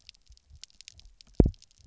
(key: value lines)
label: biophony, double pulse
recorder: SoundTrap 300